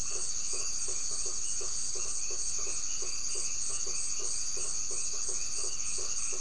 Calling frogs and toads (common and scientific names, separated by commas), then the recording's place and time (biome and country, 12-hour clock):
white-edged tree frog (Boana albomarginata), blacksmith tree frog (Boana faber)
Atlantic Forest, Brazil, 9:30pm